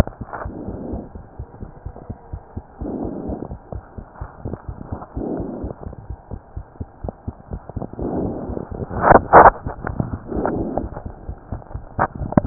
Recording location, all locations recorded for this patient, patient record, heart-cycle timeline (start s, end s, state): pulmonary valve (PV)
aortic valve (AV)+pulmonary valve (PV)+tricuspid valve (TV)+mitral valve (MV)
#Age: Child
#Sex: Female
#Height: 99.0 cm
#Weight: 31.1 kg
#Pregnancy status: False
#Murmur: Absent
#Murmur locations: nan
#Most audible location: nan
#Systolic murmur timing: nan
#Systolic murmur shape: nan
#Systolic murmur grading: nan
#Systolic murmur pitch: nan
#Systolic murmur quality: nan
#Diastolic murmur timing: nan
#Diastolic murmur shape: nan
#Diastolic murmur grading: nan
#Diastolic murmur pitch: nan
#Diastolic murmur quality: nan
#Outcome: Normal
#Campaign: 2015 screening campaign
0.00	1.37	unannotated
1.37	1.47	S1
1.47	1.61	systole
1.61	1.68	S2
1.68	1.83	diastole
1.83	1.93	S1
1.93	2.08	systole
2.08	2.14	S2
2.14	2.30	diastole
2.30	2.42	S1
2.42	2.54	systole
2.54	2.62	S2
2.62	2.79	diastole
2.79	2.88	S1
2.88	3.71	unannotated
3.71	3.84	S1
3.84	3.96	systole
3.96	4.04	S2
4.04	4.19	diastole
4.19	4.28	S1
4.28	6.07	unannotated
6.07	6.18	S1
6.18	6.30	systole
6.30	6.38	S2
6.38	6.55	diastole
6.55	6.64	S1
6.64	6.78	systole
6.78	6.88	S2
6.88	7.02	diastole
7.02	7.14	S1
7.14	7.26	systole
7.26	7.36	S2
7.36	7.50	diastole
7.50	7.59	S1
7.59	12.46	unannotated